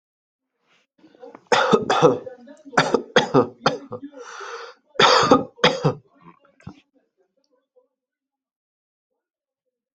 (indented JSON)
{
  "expert_labels": [
    {
      "quality": "ok",
      "cough_type": "dry",
      "dyspnea": false,
      "wheezing": false,
      "stridor": false,
      "choking": false,
      "congestion": false,
      "nothing": true,
      "diagnosis": "COVID-19",
      "severity": "mild"
    }
  ],
  "age": 33,
  "gender": "male",
  "respiratory_condition": false,
  "fever_muscle_pain": true,
  "status": "healthy"
}